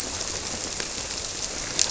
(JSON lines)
{"label": "biophony", "recorder": "SoundTrap 300"}